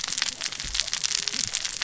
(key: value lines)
label: biophony, cascading saw
recorder: SoundTrap 600 or HydroMoth